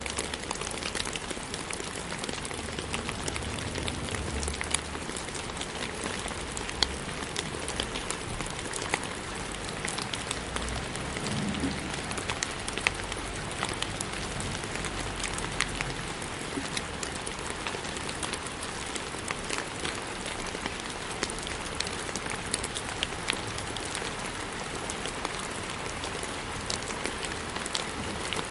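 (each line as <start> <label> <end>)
0.0 Raindrops rhythmically dropping to the ground outdoors. 28.5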